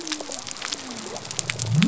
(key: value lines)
label: biophony
recorder: SoundTrap 300